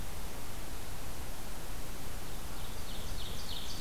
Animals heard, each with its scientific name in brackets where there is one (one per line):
Ovenbird (Seiurus aurocapilla)